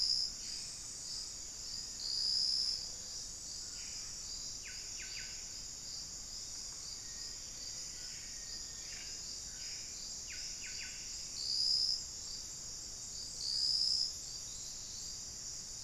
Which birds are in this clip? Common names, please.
Buff-breasted Wren, Black-faced Antthrush